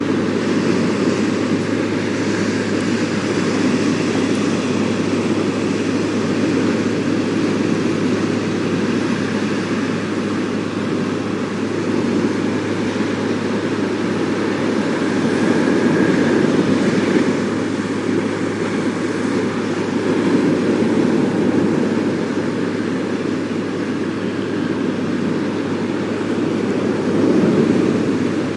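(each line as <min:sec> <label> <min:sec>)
0:00.0 Surf noise with a fishing boat engine in the distance. 0:28.6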